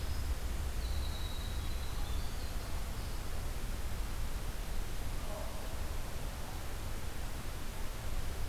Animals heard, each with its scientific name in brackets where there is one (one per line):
Winter Wren (Troglodytes hiemalis)